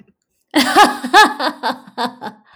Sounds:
Laughter